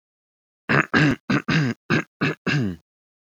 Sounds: Throat clearing